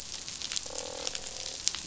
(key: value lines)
label: biophony, croak
recorder: SoundTrap 500